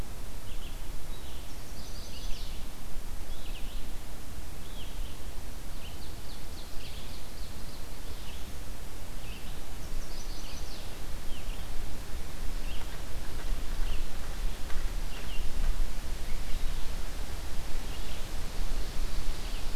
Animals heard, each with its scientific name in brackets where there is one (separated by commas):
Red-eyed Vireo (Vireo olivaceus), Chestnut-sided Warbler (Setophaga pensylvanica), Ovenbird (Seiurus aurocapilla)